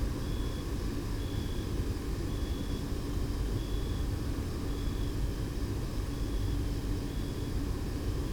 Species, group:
Oecanthus pellucens, Orthoptera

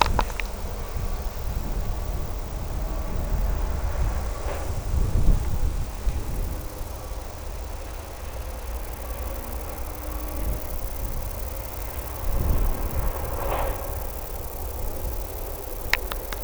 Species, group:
Conocephalus fuscus, Orthoptera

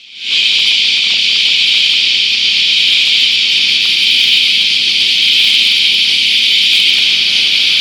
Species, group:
Henicopsaltria eydouxii, Cicadidae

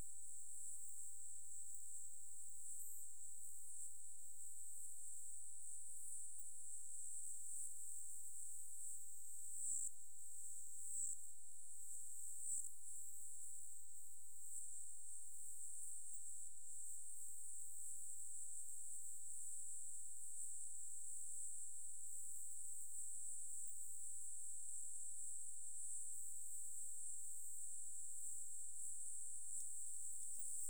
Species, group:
Odontura aspericauda, Orthoptera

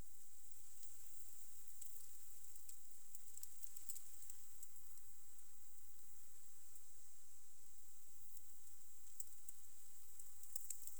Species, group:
Roeseliana roeselii, Orthoptera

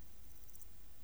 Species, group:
Pholidoptera littoralis, Orthoptera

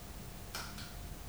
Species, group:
Poecilimon paros, Orthoptera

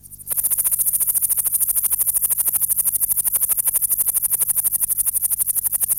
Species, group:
Pholidoptera frivaldszkyi, Orthoptera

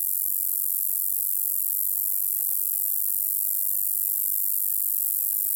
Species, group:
Polysarcus denticauda, Orthoptera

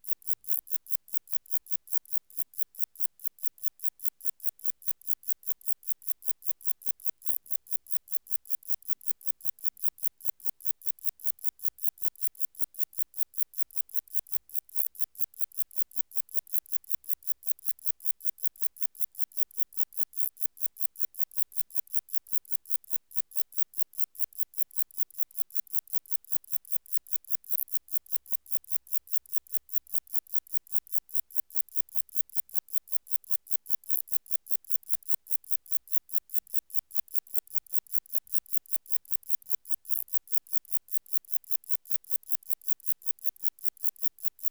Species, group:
Metrioptera saussuriana, Orthoptera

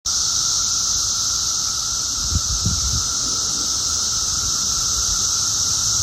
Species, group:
Magicicada cassini, Cicadidae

